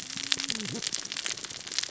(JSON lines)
{"label": "biophony, cascading saw", "recorder": "SoundTrap 600 or HydroMoth"}